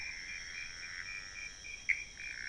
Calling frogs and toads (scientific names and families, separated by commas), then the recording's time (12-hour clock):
Pithecopus azureus (Hylidae)
12:45am